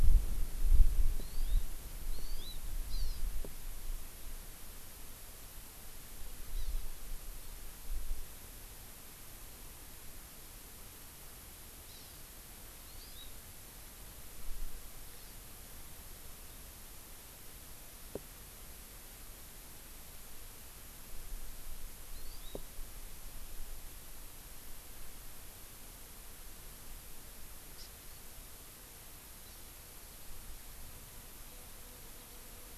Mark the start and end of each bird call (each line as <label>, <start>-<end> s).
Hawaii Amakihi (Chlorodrepanis virens), 1.2-1.6 s
Hawaii Amakihi (Chlorodrepanis virens), 2.1-3.2 s
Hawaii Amakihi (Chlorodrepanis virens), 6.5-6.8 s
Hawaii Amakihi (Chlorodrepanis virens), 11.8-12.2 s
Hawaii Amakihi (Chlorodrepanis virens), 12.8-13.3 s
Hawaii Amakihi (Chlorodrepanis virens), 15.1-15.3 s
Hawaii Amakihi (Chlorodrepanis virens), 22.1-22.6 s
Hawaii Amakihi (Chlorodrepanis virens), 27.7-27.9 s
House Finch (Haemorhous mexicanus), 29.4-29.7 s